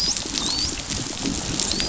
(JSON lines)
{"label": "biophony, dolphin", "recorder": "SoundTrap 500"}